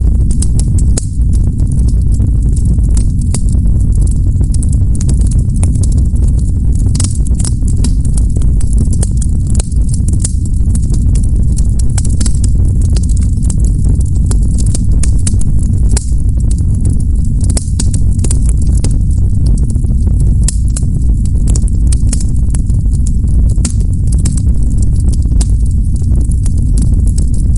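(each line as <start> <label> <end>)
0.0 A fire burns loudly in a steady, consistent pattern. 27.6
0.0 Wood cracks and pops within the flames with overlapping sounds. 27.6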